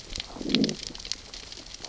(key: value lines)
label: biophony, growl
recorder: SoundTrap 600 or HydroMoth